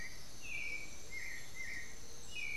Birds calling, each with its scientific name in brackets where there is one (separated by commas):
Black-billed Thrush (Turdus ignobilis), Amazonian Motmot (Momotus momota)